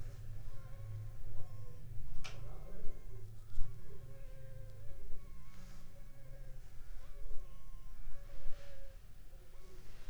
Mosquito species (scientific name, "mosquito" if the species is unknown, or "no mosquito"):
Anopheles funestus s.s.